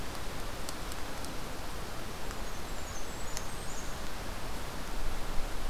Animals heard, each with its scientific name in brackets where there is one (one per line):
Blackburnian Warbler (Setophaga fusca)